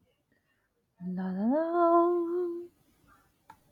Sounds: Sigh